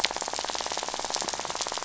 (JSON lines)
{"label": "biophony, rattle", "recorder": "SoundTrap 500"}